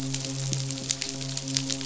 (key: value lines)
label: biophony, midshipman
recorder: SoundTrap 500